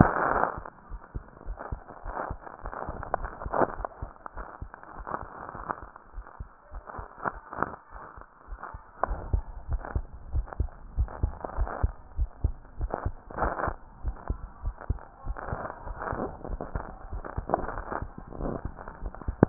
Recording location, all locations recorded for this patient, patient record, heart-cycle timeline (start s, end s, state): tricuspid valve (TV)
aortic valve (AV)+pulmonary valve (PV)+tricuspid valve (TV)+mitral valve (MV)
#Age: Child
#Sex: Female
#Height: 122.0 cm
#Weight: 25.9 kg
#Pregnancy status: False
#Murmur: Absent
#Murmur locations: nan
#Most audible location: nan
#Systolic murmur timing: nan
#Systolic murmur shape: nan
#Systolic murmur grading: nan
#Systolic murmur pitch: nan
#Systolic murmur quality: nan
#Diastolic murmur timing: nan
#Diastolic murmur shape: nan
#Diastolic murmur grading: nan
#Diastolic murmur pitch: nan
#Diastolic murmur quality: nan
#Outcome: Normal
#Campaign: 2015 screening campaign
0.00	0.64	unannotated
0.64	0.88	diastole
0.88	1.00	S1
1.00	1.14	systole
1.14	1.24	S2
1.24	1.46	diastole
1.46	1.58	S1
1.58	1.70	systole
1.70	1.82	S2
1.82	2.05	diastole
2.05	2.16	S1
2.16	2.28	systole
2.28	2.40	S2
2.40	2.63	diastole
2.63	2.74	S1
2.74	2.86	systole
2.86	2.96	S2
2.96	3.18	diastole
3.18	3.32	S1
3.32	3.44	systole
3.44	3.54	S2
3.54	3.78	diastole
3.78	3.86	S1
3.86	3.98	systole
3.98	4.10	S2
4.10	4.35	diastole
4.35	4.46	S1
4.46	4.60	systole
4.60	4.70	S2
4.70	4.95	diastole
4.95	5.06	S1
5.06	5.18	systole
5.18	5.28	S2
5.28	5.56	diastole
5.56	5.66	S1
5.66	5.80	systole
5.80	5.88	S2
5.88	6.14	diastole
6.14	6.24	S1
6.24	6.38	systole
6.38	6.50	S2
6.50	6.71	diastole
6.71	6.82	S1
6.82	6.96	systole
6.96	7.08	S2
7.08	7.33	diastole
7.33	19.49	unannotated